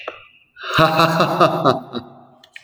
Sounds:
Laughter